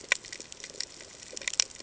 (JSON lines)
{"label": "ambient", "recorder": "HydroMoth"}